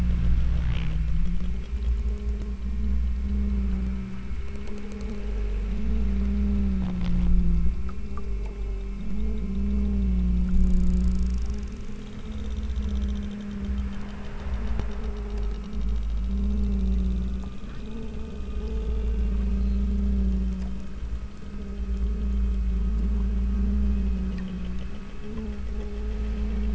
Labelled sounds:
17.8	18.3	killer whale, southern Alaska resident, 1.8 to 3.1 kHz
19.5	20.0	killer whale, southern Alaska resident, 3.6 to 4.9 kHz

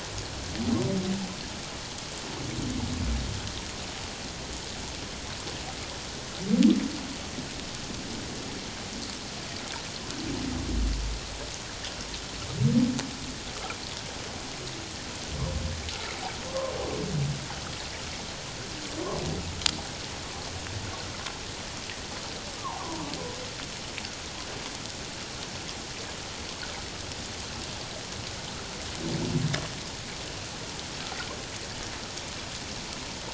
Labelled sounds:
16.5	16.7	humpback whale, 0.91 to 1.2 kHz
22.6	23.0	humpback whale, 0.78 to 1.2 kHz

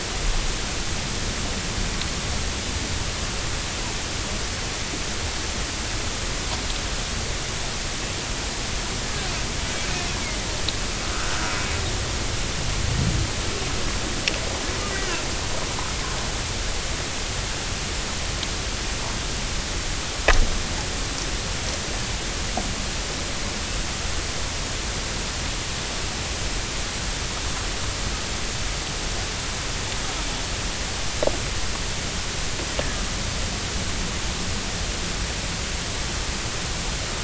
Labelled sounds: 14.9	15.2	Risso's dolphin, 1.3 to 2.0 kHz
32.8	33.0	Risso's dolphin, 1.6 to 1.8 kHz

